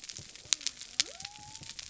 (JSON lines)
{"label": "biophony", "recorder": "SoundTrap 300"}